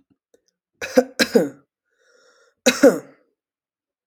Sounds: Cough